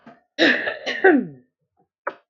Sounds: Throat clearing